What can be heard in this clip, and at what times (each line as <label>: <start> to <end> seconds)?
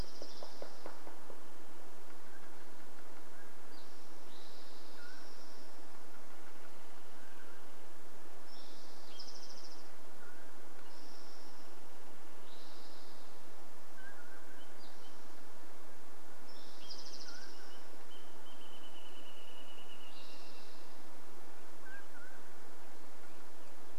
Dark-eyed Junco song: 0 to 2 seconds
Wrentit song: 0 to 2 seconds
woodpecker drumming: 0 to 2 seconds
Spotted Towhee song: 0 to 6 seconds
Mountain Quail call: 2 to 8 seconds
Wrentit song: 6 to 8 seconds
woodpecker drumming: 6 to 8 seconds
Spotted Towhee song: 8 to 18 seconds
Mountain Quail call: 10 to 12 seconds
unidentified sound: 10 to 12 seconds
Mountain Quail call: 14 to 18 seconds
Wrentit song: 14 to 22 seconds
Spotted Towhee song: 20 to 22 seconds
Mountain Quail call: 20 to 24 seconds
American Robin song: 22 to 24 seconds